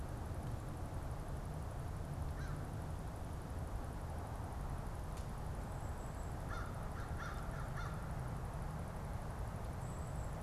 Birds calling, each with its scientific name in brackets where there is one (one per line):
Golden-crowned Kinglet (Regulus satrapa)
American Crow (Corvus brachyrhynchos)